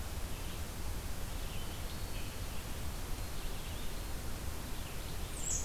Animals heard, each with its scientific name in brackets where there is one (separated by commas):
Red-eyed Vireo (Vireo olivaceus)